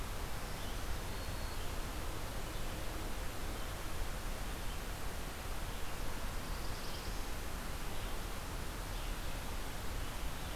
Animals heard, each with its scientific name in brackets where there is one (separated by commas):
Red-eyed Vireo (Vireo olivaceus), Black-throated Blue Warbler (Setophaga caerulescens)